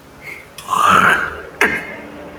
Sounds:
Throat clearing